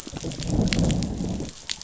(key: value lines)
label: biophony, growl
recorder: SoundTrap 500